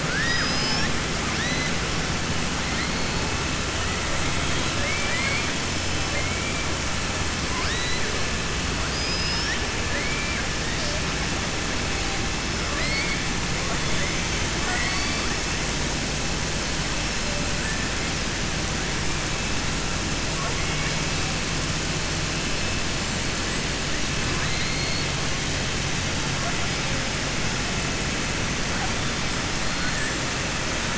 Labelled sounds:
0.0	0.9	killer whale, southern resident, 0.83 to 6.1 kHz
4.7	5.5	killer whale, southern resident, 1.1 to 5.1 kHz
8.8	10.4	killer whale, southern resident, 0.95 to 5.7 kHz
12.6	13.2	killer whale, southern resident, 1.2 to 5.2 kHz
14.5	15.2	killer whale, southern resident, 0.70 to 8.0 kHz
20.3	21.0	killer whale, southern resident, 0.48 to 2.9 kHz

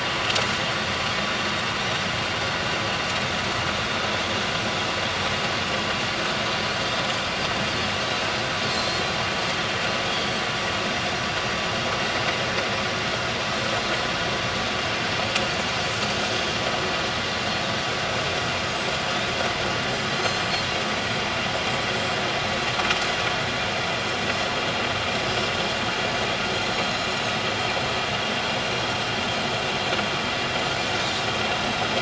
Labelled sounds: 1.8	2.1	Pacific white-sided dolphin, 5.6 to 6.1 kHz
8.7	9.0	Pacific white-sided dolphin, 4.0 to 4.4 kHz
10.1	10.4	Pacific white-sided dolphin, 3.1 to 4.6 kHz
18.6	18.9	Pacific white-sided dolphin, 7.6 to 8.0 kHz
20.1	20.5	Pacific white-sided dolphin, 4.0 to 6.4 kHz
25.2	25.5	Pacific white-sided dolphin, 4.8 to 5.0 kHz
26.7	27.2	Pacific white-sided dolphin, 4.0 to 6.9 kHz

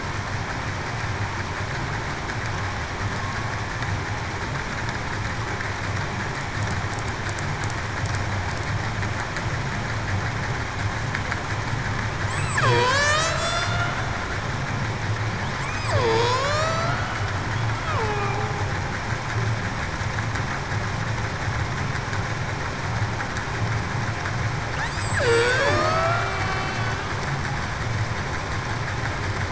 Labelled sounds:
12.6	13.7	killer whale, Bigg's (transient), 0.42 to 8.0 kHz
15.9	17.0	killer whale, Bigg's (transient), 0.42 to 6.1 kHz
18.0	18.5	killer whale, Bigg's (transient), 0.77 to 2.6 kHz
24.8	26.8	killer whale, Bigg's (transient), 0.58 to 8.0 kHz

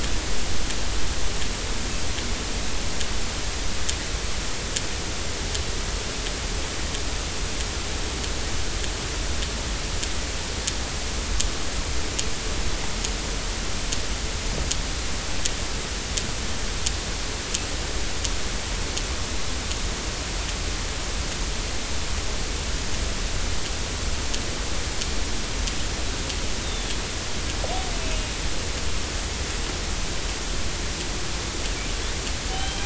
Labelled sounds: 26.6	27.0	killer whale, northern resident, 3.2 to 3.8 kHz
32.5	32.8	killer whale, northern resident, 3.0 to 3.2 kHz

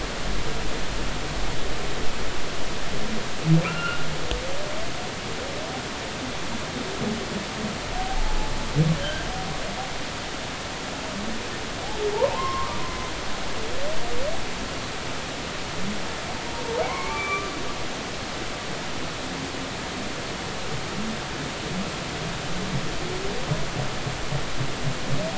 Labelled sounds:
3.6	4.0	humpback whale, 1.2 to 3.0 kHz
7.9	8.5	humpback whale, 0.80 to 0.93 kHz
9.0	9.3	humpback whale, 1.5 to 1.7 kHz
12.1	12.8	humpback whale, 0.80 to 1.2 kHz
16.8	17.5	humpback whale, 0.93 to 2.5 kHz

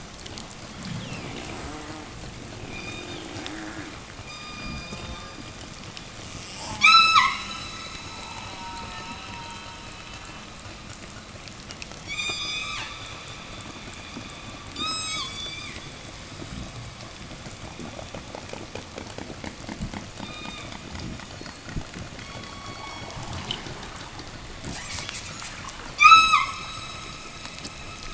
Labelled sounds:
2.5	3.4	killer whale, southern resident, 0 to 8.0 kHz
4.0	5.4	killer whale, southern resident, 0 to 8.0 kHz
6.1	7.6	killer whale, southern resident, 0.03 to 8.0 kHz
11.9	13.1	killer whale, southern resident, 0 to 8.0 kHz
14.6	15.9	killer whale, southern resident, 0 to 8.0 kHz
20.1	20.8	killer whale, southern resident, 0 to 4.0 kHz
22.1	23.2	killer whale, southern resident, 0 to 5.2 kHz
24.6	26.6	killer whale, southern resident, 0 to 8.0 kHz

